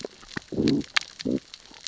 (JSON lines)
{"label": "biophony, growl", "recorder": "SoundTrap 600 or HydroMoth"}